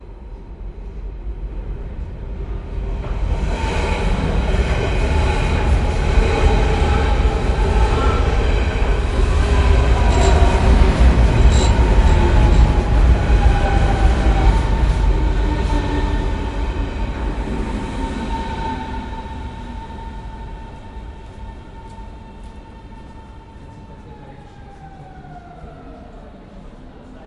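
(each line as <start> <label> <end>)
3.4 A train rushes by at high speed. 10.8
11.0 Metallic creaking noises from the rail joints as a train passes by. 13.4
13.6 The rushing air of a passing train gradually decreases. 21.4
22.6 Distant muffled speech. 27.2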